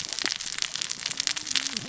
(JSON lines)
{"label": "biophony, cascading saw", "recorder": "SoundTrap 600 or HydroMoth"}